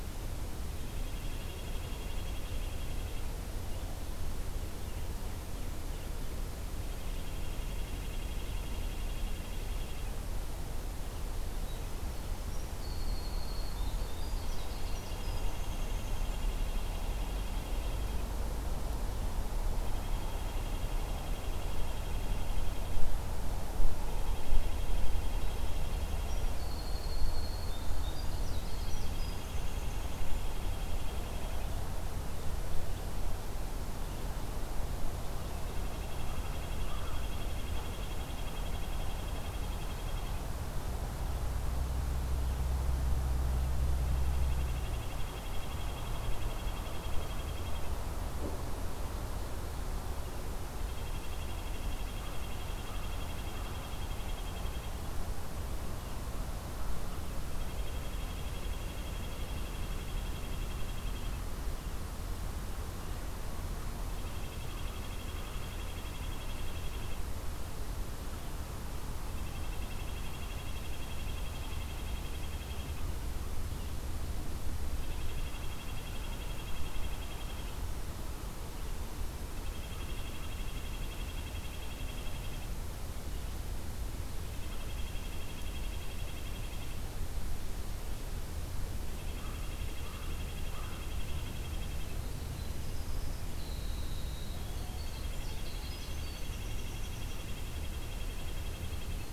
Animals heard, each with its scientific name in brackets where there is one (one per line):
Red-breasted Nuthatch (Sitta canadensis)
American Crow (Corvus brachyrhynchos)
Winter Wren (Troglodytes hiemalis)